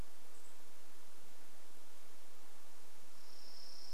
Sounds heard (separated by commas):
Chipping Sparrow song, unidentified bird chip note